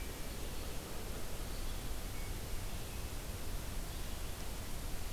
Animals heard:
forest ambience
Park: Marsh-Billings-Rockefeller National Historical Park